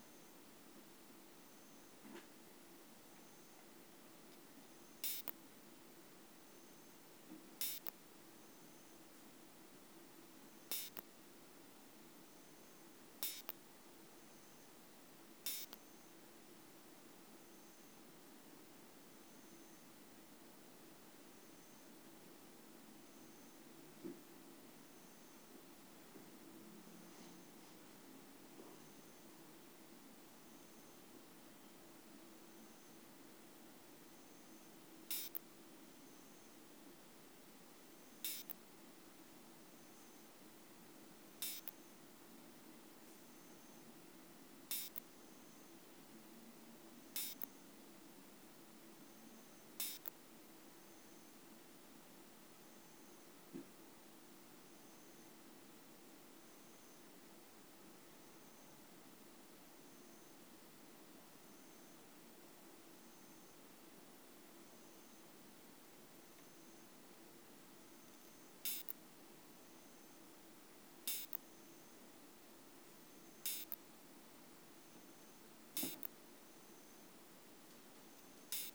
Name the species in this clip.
Isophya modestior